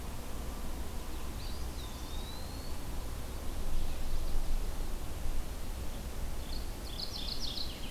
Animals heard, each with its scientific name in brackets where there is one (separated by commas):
Mourning Warbler (Geothlypis philadelphia), Eastern Wood-Pewee (Contopus virens)